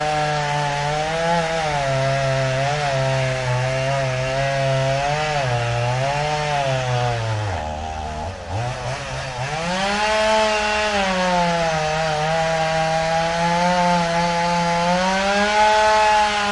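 0.0s A gasoline chainsaw running at high and slightly varying RPM. 7.6s
7.6s A gasoline chainsaw running at low RPM. 8.5s
8.4s A gasoline chainsaw's RPM changes rapidly in quick succession. 9.4s
9.4s A gasoline chainsaw engine revving up gradually. 10.0s
10.0s A gasoline chainsaw running at high and slightly varying RPM. 16.5s

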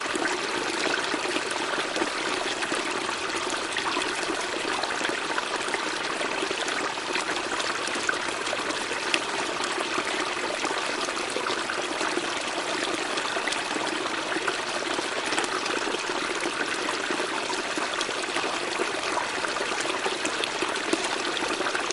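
0.0s Water from a flowing stream passes by gradually. 21.9s

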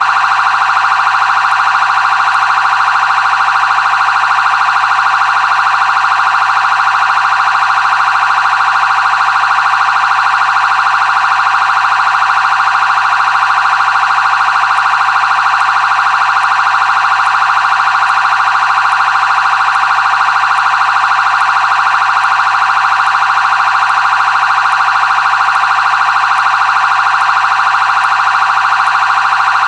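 0.0s A siren emits a constant, loud tone continuously. 29.7s

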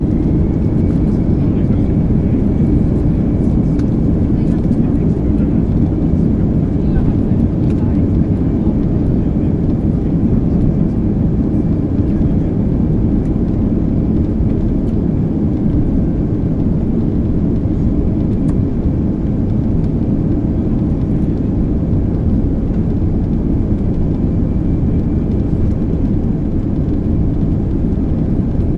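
0.0s Wind sounds inside an airplane cabin after takeoff. 28.8s
1.3s Airplane passengers are talking in the background. 13.2s

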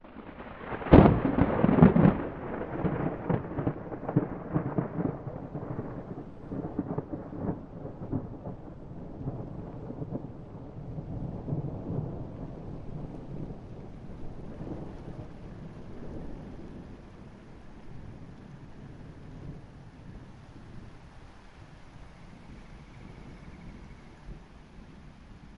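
0.0s A lightning strike. 2.3s
0.0s Slight rain is falling. 25.6s
2.3s Continuous quiet thunder rumbling in the distance. 25.6s

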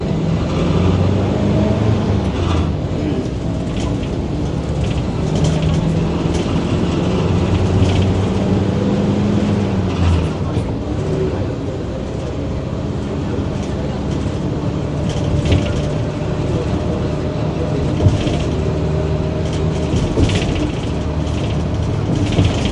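0.1s A minibus is driving, recorded from inside. 22.7s

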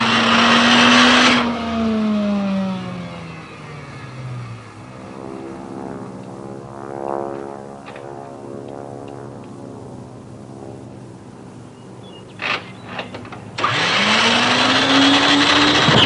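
0.0s An engine roars loudly. 1.6s
1.7s An engine is running. 5.0s
5.0s An airplane passes by in the distance. 12.2s
11.7s Birds singing in the distance. 12.6s
12.4s Something cracks. 13.4s
13.6s An engine is roaring. 16.1s

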